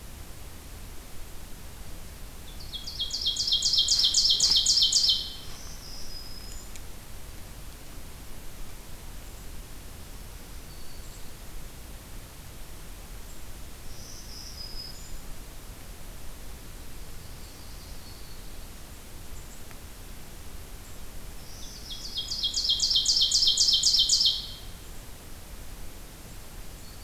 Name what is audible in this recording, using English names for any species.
Ovenbird, Black-throated Green Warbler, Yellow-rumped Warbler